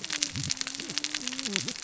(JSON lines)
{"label": "biophony, cascading saw", "recorder": "SoundTrap 600 or HydroMoth"}